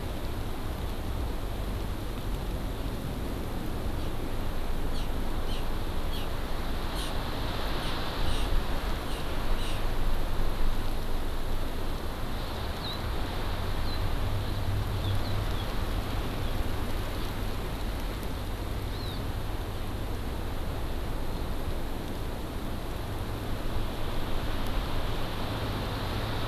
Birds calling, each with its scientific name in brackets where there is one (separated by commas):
Hawaii Amakihi (Chlorodrepanis virens), House Finch (Haemorhous mexicanus)